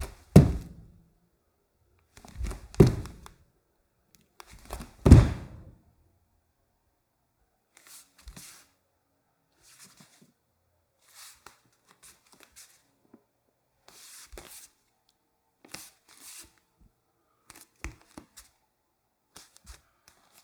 Are there anyone talking?
no